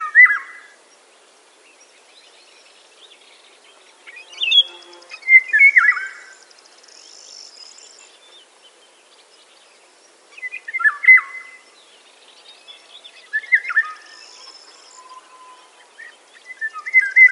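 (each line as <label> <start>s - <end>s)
A bird sings once lively outdoors. 0.0s - 0.5s
Birds sing repeatedly and rhythmically outdoors. 0.0s - 17.3s
A bird sings once in the distance. 3.9s - 5.0s
A bee buzzes quickly. 3.9s - 5.1s
A bird sings rhythmically and closely. 5.0s - 6.3s
A bird is making noises. 7.2s - 8.0s
A bird sings once outdoors. 10.3s - 11.5s
Bees buzzing noisily. 12.3s - 13.2s
A bird sings loudly outdoors. 13.3s - 14.0s
A bird is making noises. 14.0s - 14.9s
A bird sings once in the background. 14.9s - 15.8s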